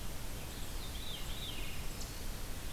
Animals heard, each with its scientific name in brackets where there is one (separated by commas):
Veery (Catharus fuscescens), Golden-crowned Kinglet (Regulus satrapa)